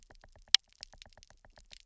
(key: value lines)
label: biophony, knock
recorder: SoundTrap 300